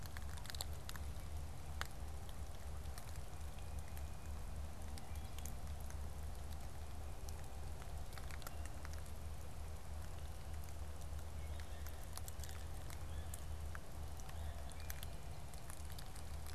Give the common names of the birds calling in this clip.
Yellow-bellied Sapsucker